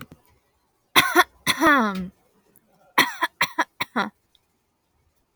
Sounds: Cough